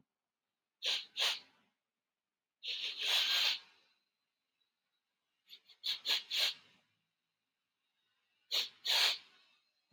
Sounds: Sniff